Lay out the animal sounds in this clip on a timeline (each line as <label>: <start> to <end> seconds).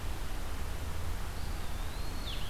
Eastern Wood-Pewee (Contopus virens): 1.2 to 2.5 seconds